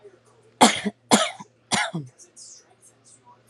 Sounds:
Cough